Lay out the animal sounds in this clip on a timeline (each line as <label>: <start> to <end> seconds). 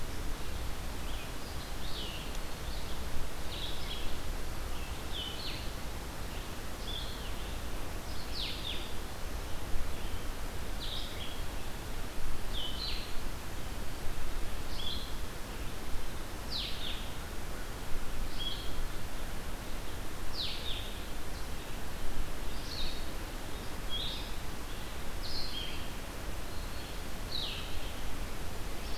Red-eyed Vireo (Vireo olivaceus): 0.0 to 10.5 seconds
Blue-headed Vireo (Vireo solitarius): 0.0 to 29.0 seconds
Red-eyed Vireo (Vireo olivaceus): 21.4 to 29.0 seconds
Black-throated Green Warbler (Setophaga virens): 26.3 to 27.2 seconds